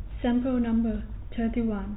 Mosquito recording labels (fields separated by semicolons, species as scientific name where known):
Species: no mosquito; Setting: cup